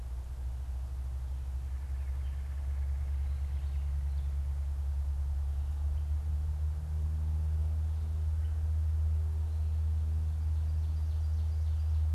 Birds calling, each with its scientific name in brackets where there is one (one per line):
Red-bellied Woodpecker (Melanerpes carolinus)
Ovenbird (Seiurus aurocapilla)